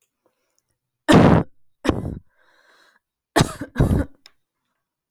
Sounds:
Cough